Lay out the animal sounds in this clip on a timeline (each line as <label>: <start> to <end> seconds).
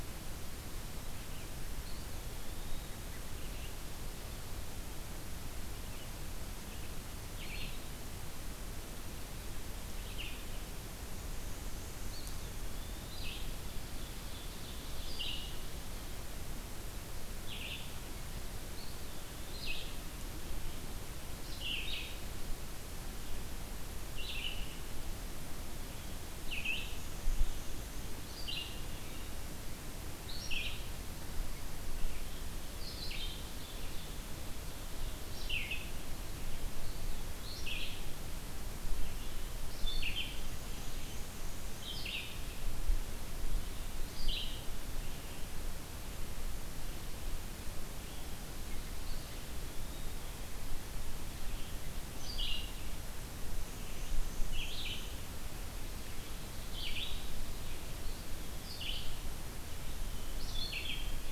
Red-eyed Vireo (Vireo olivaceus): 0.0 to 44.7 seconds
Eastern Wood-Pewee (Contopus virens): 1.7 to 3.1 seconds
Eastern Wood-Pewee (Contopus virens): 12.0 to 13.3 seconds
Ovenbird (Seiurus aurocapilla): 13.2 to 15.4 seconds
Eastern Wood-Pewee (Contopus virens): 18.5 to 19.8 seconds
Black-and-white Warbler (Mniotilta varia): 26.5 to 28.4 seconds
Black-and-white Warbler (Mniotilta varia): 40.3 to 41.9 seconds
Eastern Wood-Pewee (Contopus virens): 49.1 to 50.5 seconds
Red-eyed Vireo (Vireo olivaceus): 51.9 to 59.3 seconds
Black-and-white Warbler (Mniotilta varia): 53.5 to 55.3 seconds